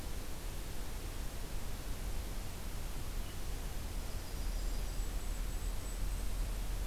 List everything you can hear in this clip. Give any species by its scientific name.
Setophaga coronata, Regulus satrapa